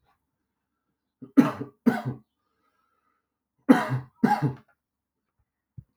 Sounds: Cough